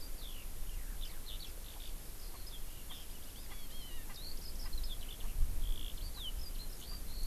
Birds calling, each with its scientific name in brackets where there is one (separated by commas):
Erckel's Francolin (Pternistis erckelii), Eurasian Skylark (Alauda arvensis)